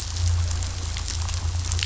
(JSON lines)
{"label": "anthrophony, boat engine", "recorder": "SoundTrap 500"}